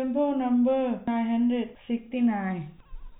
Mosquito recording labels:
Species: no mosquito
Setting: cup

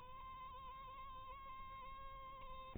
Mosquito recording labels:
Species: mosquito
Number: one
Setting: cup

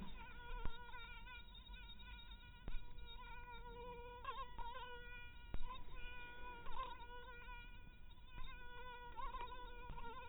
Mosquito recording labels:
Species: mosquito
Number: one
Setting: cup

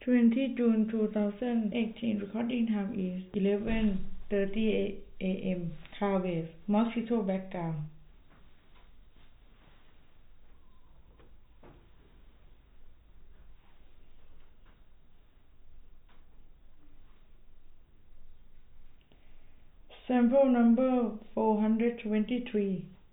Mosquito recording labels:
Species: no mosquito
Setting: cup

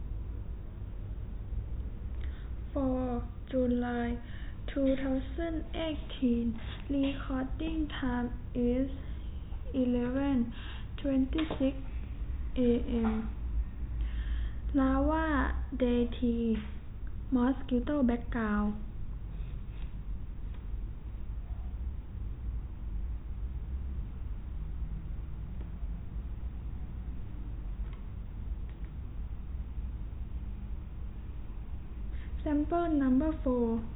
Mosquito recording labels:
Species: no mosquito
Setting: cup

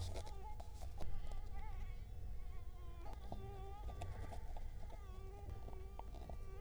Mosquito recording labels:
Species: Culex quinquefasciatus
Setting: cup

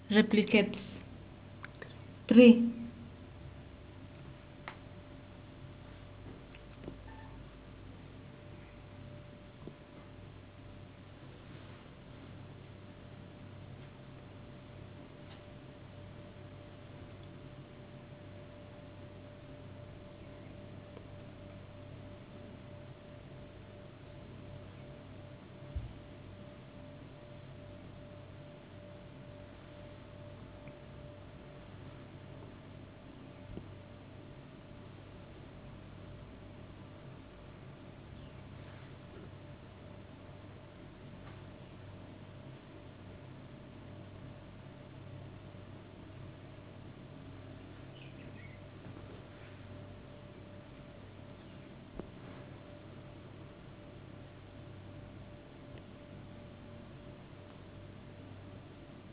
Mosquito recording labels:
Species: no mosquito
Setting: insect culture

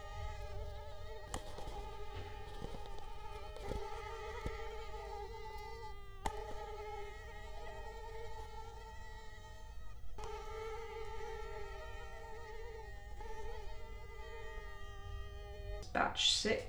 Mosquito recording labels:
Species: Culex quinquefasciatus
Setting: cup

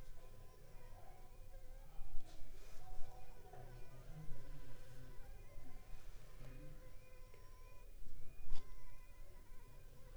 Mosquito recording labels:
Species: Anopheles funestus s.l.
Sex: female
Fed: unfed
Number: one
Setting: cup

